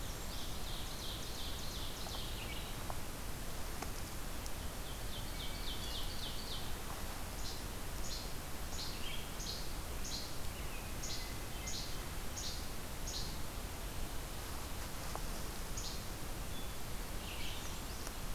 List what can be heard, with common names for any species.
Ovenbird, Hermit Thrush, Least Flycatcher, American Redstart, Red-eyed Vireo